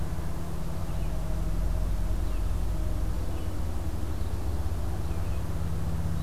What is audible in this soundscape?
Red-eyed Vireo